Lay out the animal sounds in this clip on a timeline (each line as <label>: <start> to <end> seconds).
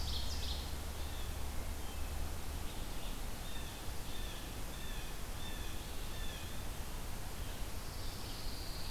Ovenbird (Seiurus aurocapilla): 0.0 to 1.1 seconds
Red-eyed Vireo (Vireo olivaceus): 0.0 to 8.9 seconds
Red-breasted Nuthatch (Sitta canadensis): 3.3 to 6.7 seconds
Pine Warbler (Setophaga pinus): 7.7 to 8.9 seconds